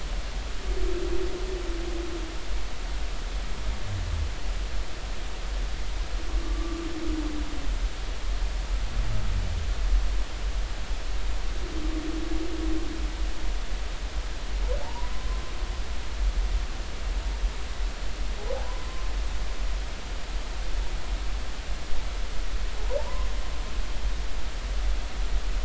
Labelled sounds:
6.4	6.8	humpback whale, 1.1 to 1.2 kHz
14.8	15.4	humpback whale, 0.83 to 1.2 kHz
18.5	19.1	humpback whale, 0.80 to 1.1 kHz

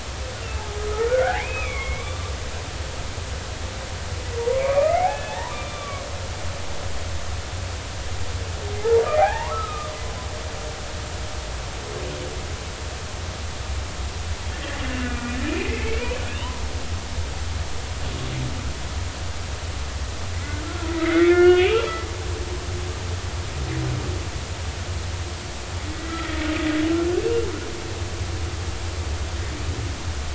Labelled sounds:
0.5	2.3	humpback whale, 0.80 to 3.6 kHz
4.4	6.1	humpback whale, 0.80 to 2.6 kHz
8.8	9.9	humpback whale, 0.80 to 2.5 kHz
15.1	16.6	humpback whale, 0.90 to 3.1 kHz
20.4	21.9	humpback whale, 1.0 to 3.0 kHz
26.0	26.4	humpback whale, 1.8 to 2.0 kHz

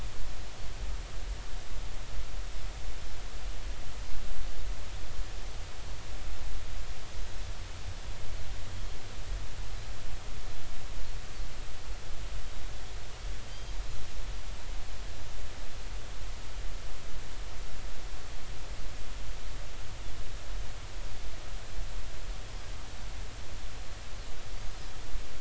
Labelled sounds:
13.5	13.7	Pacific white-sided dolphin, 3.0 to 3.3 kHz

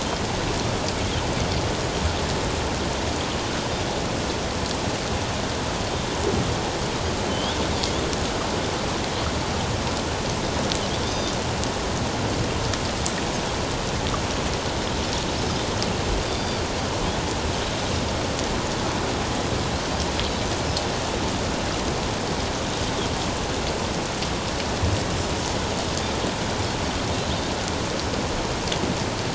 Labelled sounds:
7.3	7.6	Pacific white-sided dolphin, 3.0 to 3.8 kHz
11.0	11.4	Pacific white-sided dolphin, 3.3 to 3.8 kHz
16.2	16.6	Pacific white-sided dolphin, 3.5 to 4.8 kHz

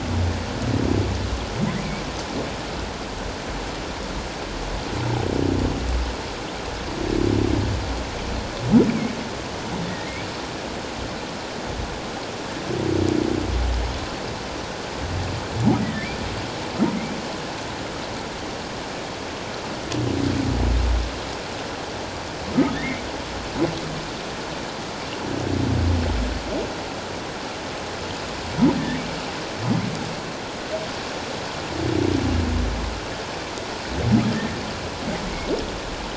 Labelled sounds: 9.9	10.1	humpback whale, 1.8 to 2.0 kHz
22.7	23.0	humpback whale, 1.7 to 2.2 kHz
28.7	29.0	humpback whale, 1.7 to 1.9 kHz

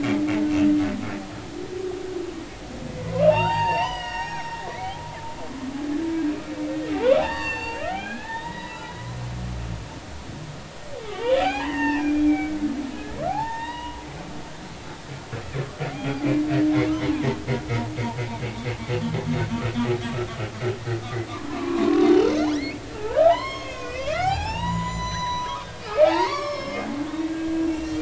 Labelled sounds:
3.1	5.0	humpback whale, 0.80 to 8.0 kHz
6.1	6.3	humpback whale, 1.6 to 1.7 kHz
6.9	8.8	humpback whale, 0.80 to 7.5 kHz
11.1	12.6	humpback whale, 0.80 to 5.6 kHz
13.3	14.0	humpback whale, 0.80 to 3.9 kHz
15.9	16.3	humpback whale, 0.80 to 3.3 kHz
21.5	26.9	humpback whale, 0.80 to 7.6 kHz
27.3	28.0	humpback whale, 1.6 to 6.1 kHz

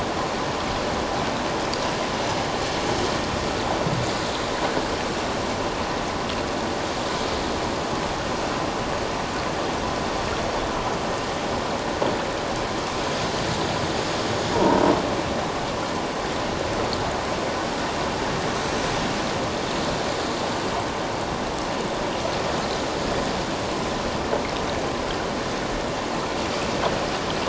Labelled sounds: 14.5	14.8	croaking sound likely from a nearby submerged object, 0.88 to 1.0 kHz

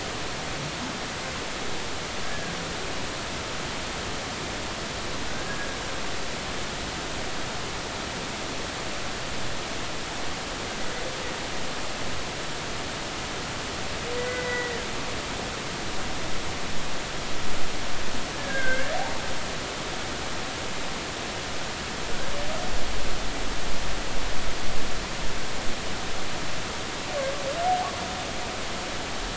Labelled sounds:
2.2	2.5	humpback whale, 1.5 to 1.8 kHz
5.3	5.8	humpback whale, 1.5 to 1.7 kHz
14.1	14.8	humpback whale, 1.8 to 2.0 kHz
18.4	18.9	humpback whale, 1.5 to 1.8 kHz

